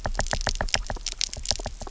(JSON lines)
{"label": "biophony, knock", "recorder": "SoundTrap 300"}